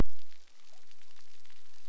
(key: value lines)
label: anthrophony, boat engine
recorder: SoundTrap 300